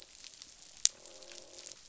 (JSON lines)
{"label": "biophony, croak", "recorder": "SoundTrap 500"}